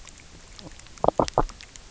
{"label": "biophony", "recorder": "SoundTrap 300"}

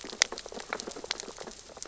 {"label": "biophony, sea urchins (Echinidae)", "recorder": "SoundTrap 600 or HydroMoth"}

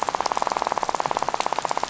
{"label": "biophony, rattle", "recorder": "SoundTrap 500"}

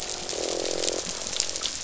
{"label": "biophony, croak", "recorder": "SoundTrap 500"}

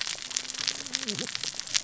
{"label": "biophony, cascading saw", "recorder": "SoundTrap 600 or HydroMoth"}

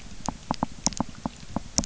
{"label": "biophony, knock", "recorder": "SoundTrap 300"}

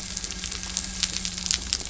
{"label": "anthrophony, boat engine", "recorder": "SoundTrap 300"}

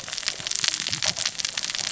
{"label": "biophony, cascading saw", "recorder": "SoundTrap 600 or HydroMoth"}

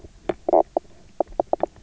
{"label": "biophony, knock croak", "recorder": "SoundTrap 300"}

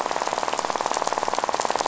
{"label": "biophony, rattle", "recorder": "SoundTrap 500"}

